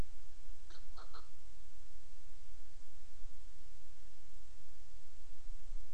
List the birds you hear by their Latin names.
Pterodroma sandwichensis